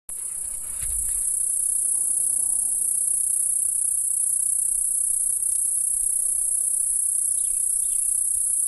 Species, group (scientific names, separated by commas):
Okanagana canescens, Cicadidae